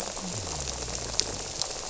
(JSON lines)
{"label": "biophony", "recorder": "SoundTrap 300"}